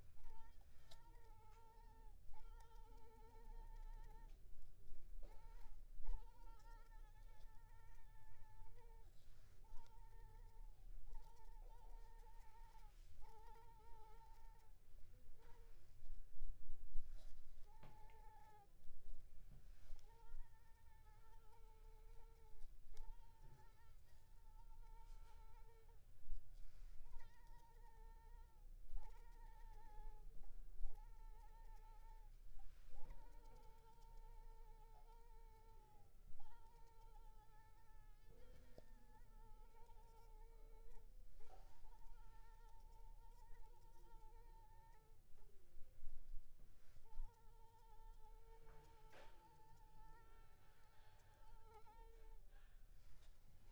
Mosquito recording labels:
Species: Anopheles arabiensis; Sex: female; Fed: unfed; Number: one; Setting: cup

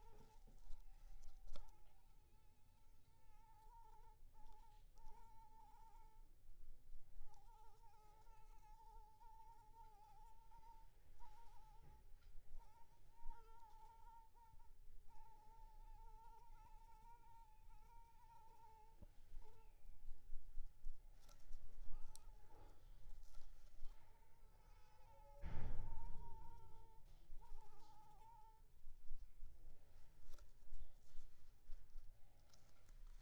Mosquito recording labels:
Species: Anopheles arabiensis; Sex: female; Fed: unfed; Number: one; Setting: cup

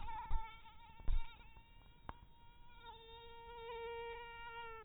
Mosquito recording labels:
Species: mosquito; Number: one; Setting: cup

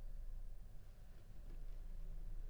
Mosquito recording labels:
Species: Anopheles arabiensis; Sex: female; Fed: unfed; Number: one; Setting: cup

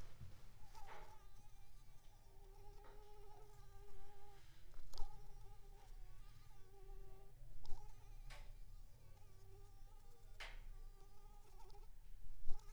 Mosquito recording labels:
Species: Anopheles gambiae s.l.; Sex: female; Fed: unfed; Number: one; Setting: cup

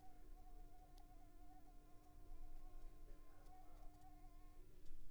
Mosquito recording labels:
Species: Anopheles squamosus; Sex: female; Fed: unfed; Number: one; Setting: cup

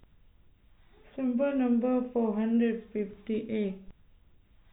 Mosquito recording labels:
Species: no mosquito; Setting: cup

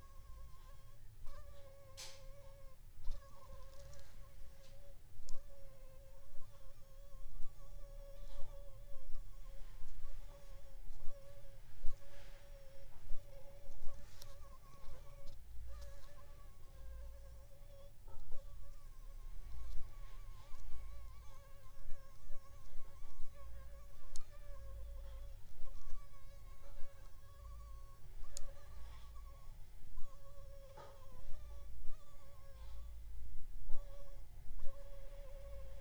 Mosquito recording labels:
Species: Anopheles funestus s.s.; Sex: female; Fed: blood-fed; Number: one; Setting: cup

